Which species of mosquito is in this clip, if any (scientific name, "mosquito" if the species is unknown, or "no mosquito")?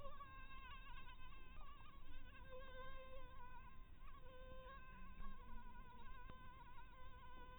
Anopheles maculatus